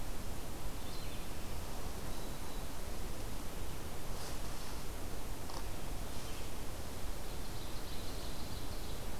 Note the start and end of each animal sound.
0.7s-1.5s: Red-eyed Vireo (Vireo olivaceus)
1.8s-2.7s: Black-throated Green Warbler (Setophaga virens)
7.1s-9.2s: Ovenbird (Seiurus aurocapilla)

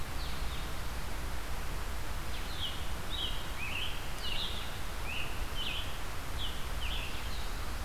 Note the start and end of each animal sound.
0.0s-7.8s: Blue-headed Vireo (Vireo solitarius)
2.3s-7.3s: Scarlet Tanager (Piranga olivacea)

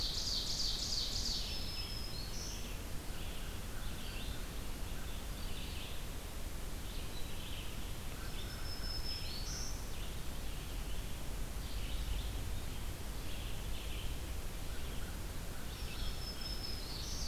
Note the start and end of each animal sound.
0.0s-1.7s: Ovenbird (Seiurus aurocapilla)
0.0s-17.3s: Red-eyed Vireo (Vireo olivaceus)
1.1s-2.8s: Black-throated Green Warbler (Setophaga virens)
3.0s-5.2s: American Crow (Corvus brachyrhynchos)
7.8s-10.0s: Black-throated Green Warbler (Setophaga virens)
8.1s-9.7s: American Crow (Corvus brachyrhynchos)
14.6s-16.8s: American Crow (Corvus brachyrhynchos)
15.5s-17.3s: Black-throated Green Warbler (Setophaga virens)

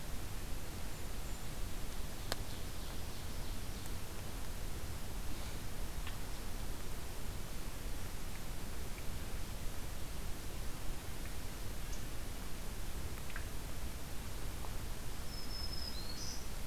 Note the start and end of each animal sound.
0.8s-1.6s: Golden-crowned Kinglet (Regulus satrapa)
2.0s-4.2s: Ovenbird (Seiurus aurocapilla)
15.0s-16.7s: Black-throated Green Warbler (Setophaga virens)

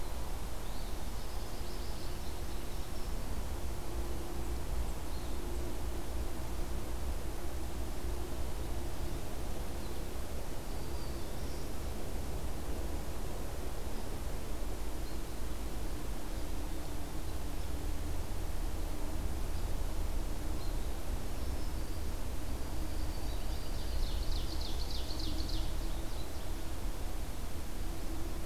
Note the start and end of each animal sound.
1.0s-3.1s: American Goldfinch (Spinus tristis)
2.6s-3.5s: Black-throated Green Warbler (Setophaga virens)
10.6s-11.7s: Black-throated Green Warbler (Setophaga virens)
22.5s-24.3s: Black-throated Green Warbler (Setophaga virens)
23.8s-25.7s: Ovenbird (Seiurus aurocapilla)
25.1s-26.7s: American Goldfinch (Spinus tristis)

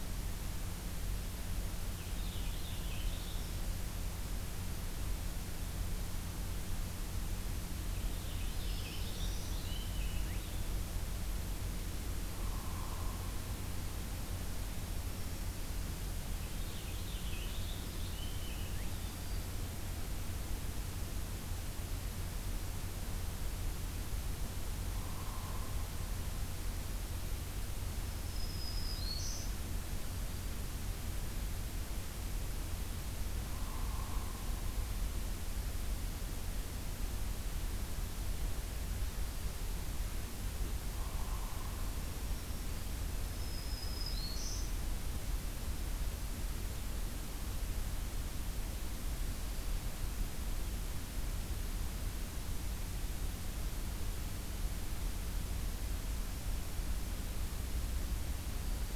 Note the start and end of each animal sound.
1.8s-3.7s: Purple Finch (Haemorhous purpureus)
7.8s-10.8s: Purple Finch (Haemorhous purpureus)
8.5s-9.9s: Black-throated Green Warbler (Setophaga virens)
12.3s-13.2s: Hairy Woodpecker (Dryobates villosus)
14.9s-15.9s: Black-throated Green Warbler (Setophaga virens)
16.2s-19.4s: Purple Finch (Haemorhous purpureus)
24.9s-25.8s: Hairy Woodpecker (Dryobates villosus)
28.0s-29.5s: Black-throated Green Warbler (Setophaga virens)
33.4s-34.6s: Hairy Woodpecker (Dryobates villosus)
40.9s-41.9s: Hairy Woodpecker (Dryobates villosus)
41.8s-44.8s: Black-throated Green Warbler (Setophaga virens)

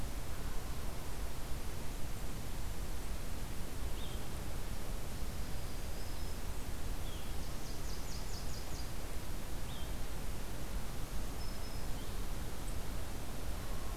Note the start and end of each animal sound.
3.9s-12.2s: Blue-headed Vireo (Vireo solitarius)
5.3s-6.5s: Black-throated Green Warbler (Setophaga virens)
7.4s-9.0s: Nashville Warbler (Leiothlypis ruficapilla)
10.9s-11.9s: Black-throated Green Warbler (Setophaga virens)

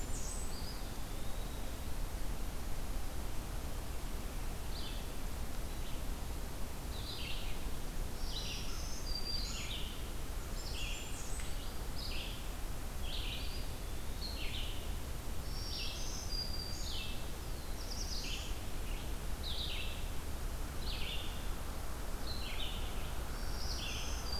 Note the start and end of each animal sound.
0.0s-0.6s: Blackburnian Warbler (Setophaga fusca)
0.0s-24.4s: Red-eyed Vireo (Vireo olivaceus)
0.4s-1.8s: Eastern Wood-Pewee (Contopus virens)
8.0s-9.7s: Black-throated Green Warbler (Setophaga virens)
10.2s-11.6s: Blackburnian Warbler (Setophaga fusca)
13.3s-14.6s: Eastern Wood-Pewee (Contopus virens)
15.3s-17.0s: Black-throated Green Warbler (Setophaga virens)
17.2s-18.7s: Black-throated Blue Warbler (Setophaga caerulescens)
23.2s-24.4s: Black-throated Green Warbler (Setophaga virens)

